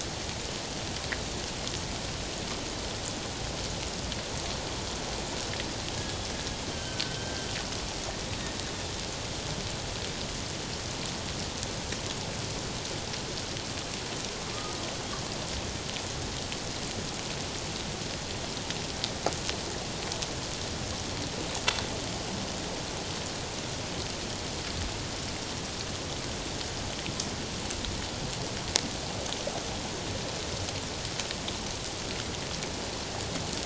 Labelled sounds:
6.7	7.5	killer whale, northern resident, G clan, 1.4 to 3.2 kHz

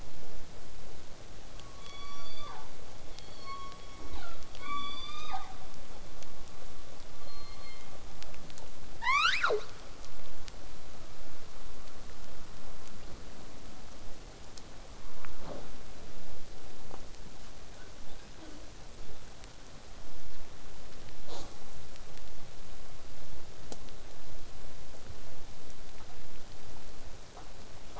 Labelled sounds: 3.1	4.5	killer whale, southern resident, J pod, call S03, 0.23 to 8.0 kHz
9.0	9.7	killer whale, southern resident, J pod, call S12, 0.31 to 8.0 kHz
10.0	15.0	vessel noise, 0 to 8.0 kHz
17.7	18.7	killer whale, southern resident, 0.15 to 4.8 kHz
21.3	21.5	killer whale, southern resident, J pod, call S05, 0.12 to 8.0 kHz

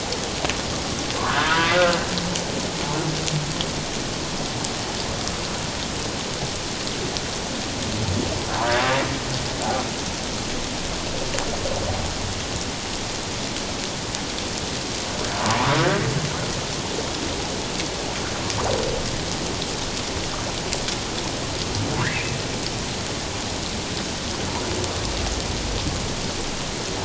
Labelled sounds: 1.2	2.0	humpback whale, 0.91 to 1.8 kHz
15.4	15.8	humpback whale, 0.84 to 1.3 kHz

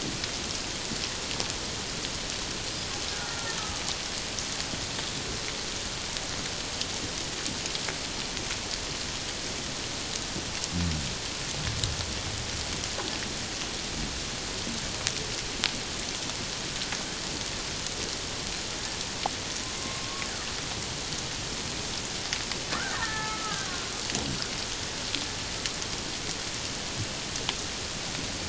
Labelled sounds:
3.2	3.6	killer whale, Bigg's (transient), 1.3 to 1.5 kHz
19.8	20.3	killer whale, Bigg's (transient), 1.0 to 1.2 kHz
22.9	23.9	killer whale, Bigg's (transient), 0.81 to 1.9 kHz

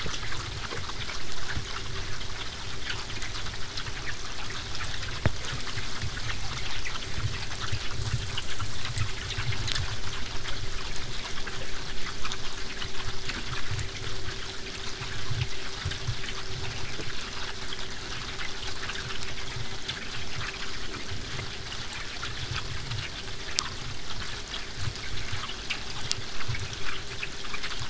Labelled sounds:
22.2	27.4	killer whale, southern resident, 5.5 to 8.0 kHz

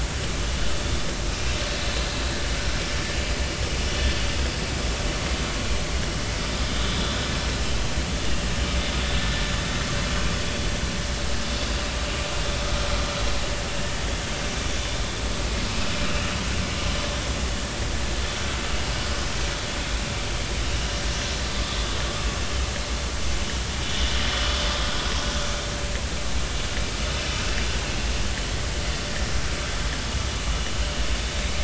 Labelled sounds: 8.2	8.5	vessel noise, 2.7 to 2.9 kHz
18.8	19.1	vessel noise, 2.8 to 3.0 kHz
23.8	24.1	vessel noise, 3.4 to 3.6 kHz

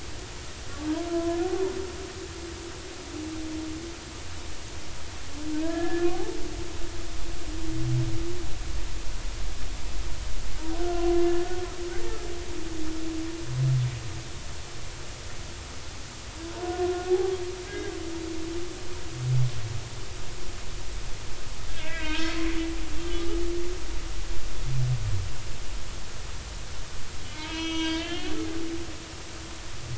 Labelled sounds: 1.1	1.4	humpback whale, 0.96 to 1.1 kHz
5.6	6.1	humpback whale, 1.6 to 1.8 kHz
10.8	11.3	humpback whale, 0.96 to 1.5 kHz
16.6	18.0	humpback whale, 0.80 to 2.1 kHz
21.7	22.4	humpback whale, 0.90 to 3.3 kHz
23.1	23.4	humpback whale, 1.2 to 1.4 kHz
27.3	28.9	humpback whale, 0.86 to 6.2 kHz

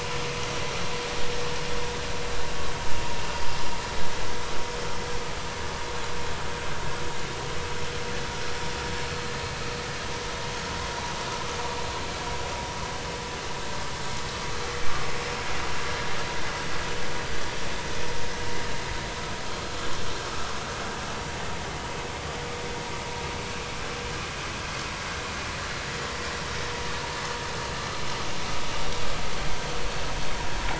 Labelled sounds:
15.9	16.1	vessel noise, 1.6 to 1.9 kHz

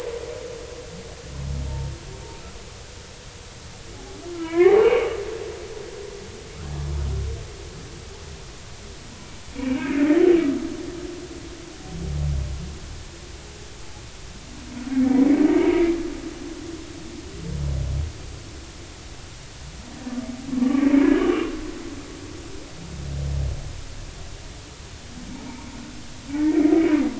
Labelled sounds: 4.3	5.1	humpback whale, 0.80 to 2.9 kHz
9.5	10.1	humpback whale, 1.5 to 2.5 kHz
15.5	15.9	humpback whale, 2.1 to 2.4 kHz
20.6	21.5	humpback whale, 1.1 to 2.8 kHz
26.3	26.7	humpback whale, 1.8 to 2.4 kHz

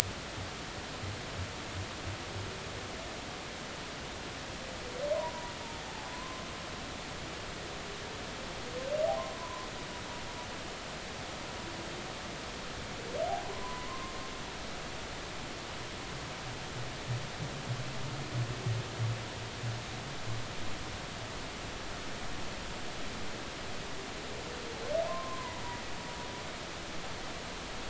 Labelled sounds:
5.1	5.5	humpback whale, 0.90 to 1.1 kHz
6.1	6.4	humpback whale, 0.96 to 1.2 kHz
9.3	9.7	humpback whale, 0.93 to 1.1 kHz
13.5	14.1	humpback whale, 0.96 to 1.1 kHz
25.1	25.6	humpback whale, 0.90 to 1.1 kHz

